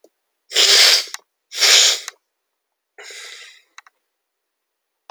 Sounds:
Sniff